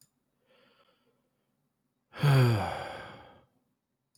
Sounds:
Sigh